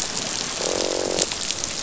{"label": "biophony, croak", "recorder": "SoundTrap 500"}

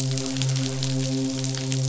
{"label": "biophony, midshipman", "recorder": "SoundTrap 500"}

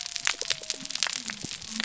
{"label": "biophony", "recorder": "SoundTrap 300"}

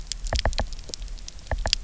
{"label": "biophony, knock", "recorder": "SoundTrap 300"}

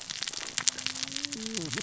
{"label": "biophony, cascading saw", "recorder": "SoundTrap 600 or HydroMoth"}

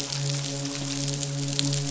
{"label": "biophony, midshipman", "recorder": "SoundTrap 500"}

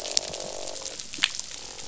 {"label": "biophony, croak", "recorder": "SoundTrap 500"}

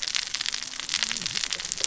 {"label": "biophony, cascading saw", "recorder": "SoundTrap 600 or HydroMoth"}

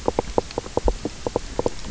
{"label": "biophony, knock croak", "recorder": "SoundTrap 300"}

